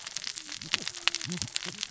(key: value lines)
label: biophony, cascading saw
recorder: SoundTrap 600 or HydroMoth